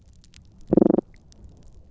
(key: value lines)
label: biophony
recorder: SoundTrap 300